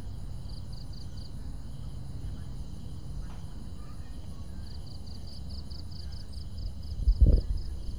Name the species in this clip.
Teleogryllus mitratus